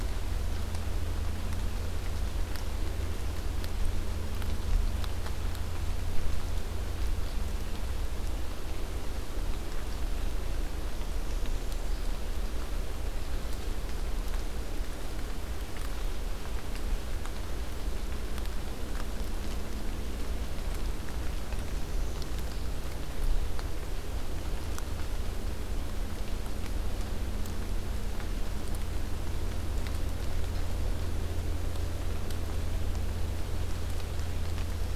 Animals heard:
forest ambience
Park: Acadia National Park